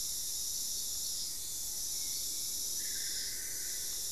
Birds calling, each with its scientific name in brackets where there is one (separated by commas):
Solitary Black Cacique (Cacicus solitarius), Spot-winged Antshrike (Pygiptila stellaris)